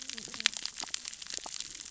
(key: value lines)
label: biophony, cascading saw
recorder: SoundTrap 600 or HydroMoth